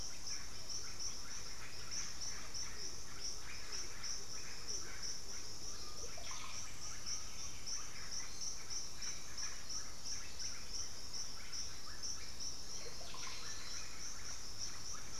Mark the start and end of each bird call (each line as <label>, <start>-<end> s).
Horned Screamer (Anhima cornuta), 0.0-5.7 s
Russet-backed Oropendola (Psarocolius angustifrons), 0.0-15.2 s
Undulated Tinamou (Crypturellus undulatus), 5.4-7.5 s
unidentified bird, 12.7-13.8 s